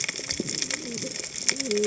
{"label": "biophony, cascading saw", "recorder": "HydroMoth"}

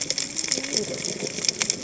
{"label": "biophony, cascading saw", "recorder": "HydroMoth"}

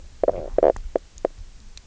{"label": "biophony, knock croak", "recorder": "SoundTrap 300"}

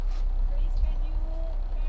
{"label": "anthrophony, boat engine", "recorder": "SoundTrap 300"}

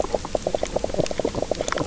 {"label": "biophony, knock croak", "recorder": "SoundTrap 300"}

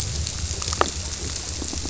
{"label": "biophony", "recorder": "SoundTrap 300"}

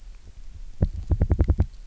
{"label": "biophony, knock", "recorder": "SoundTrap 300"}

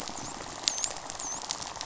{"label": "biophony, dolphin", "recorder": "SoundTrap 500"}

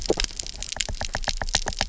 {"label": "biophony, knock", "recorder": "SoundTrap 300"}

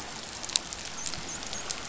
{"label": "biophony, dolphin", "recorder": "SoundTrap 500"}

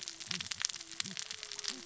{"label": "biophony, cascading saw", "recorder": "SoundTrap 600 or HydroMoth"}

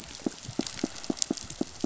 {"label": "biophony, pulse", "recorder": "SoundTrap 500"}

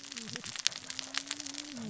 {"label": "biophony, cascading saw", "recorder": "SoundTrap 600 or HydroMoth"}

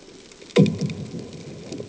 {"label": "anthrophony, bomb", "recorder": "HydroMoth"}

